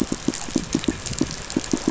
{"label": "biophony, pulse", "recorder": "SoundTrap 500"}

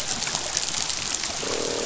{"label": "biophony, croak", "recorder": "SoundTrap 500"}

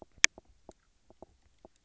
{"label": "biophony, knock croak", "recorder": "SoundTrap 300"}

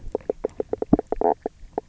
{"label": "biophony, knock croak", "recorder": "SoundTrap 300"}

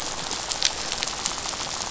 {"label": "biophony, rattle", "recorder": "SoundTrap 500"}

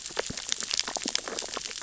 {"label": "biophony, sea urchins (Echinidae)", "recorder": "SoundTrap 600 or HydroMoth"}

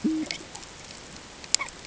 {"label": "ambient", "recorder": "HydroMoth"}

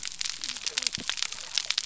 {"label": "biophony", "recorder": "SoundTrap 300"}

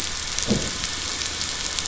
{"label": "anthrophony, boat engine", "recorder": "SoundTrap 500"}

